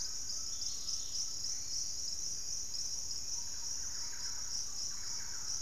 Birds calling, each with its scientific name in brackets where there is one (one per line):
Thrush-like Wren (Campylorhynchus turdinus)
Hauxwell's Thrush (Turdus hauxwelli)
Dusky-capped Greenlet (Pachysylvia hypoxantha)
Undulated Tinamou (Crypturellus undulatus)